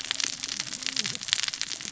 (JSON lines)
{"label": "biophony, cascading saw", "recorder": "SoundTrap 600 or HydroMoth"}